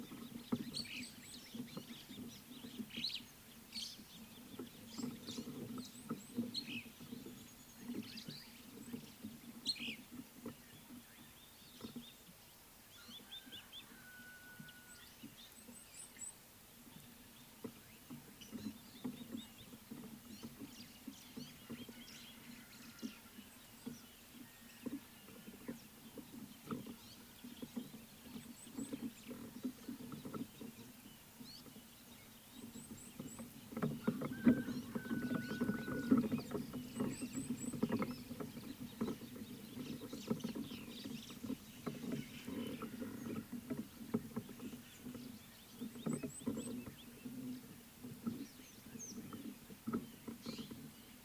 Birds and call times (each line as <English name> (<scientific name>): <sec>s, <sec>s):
Superb Starling (Lamprotornis superbus): 6.7s, 9.8s
Gabar Goshawk (Micronisus gabar): 13.4s
Red-cheeked Cordonbleu (Uraeginthus bengalus): 16.0s, 28.6s, 33.0s, 37.4s, 46.4s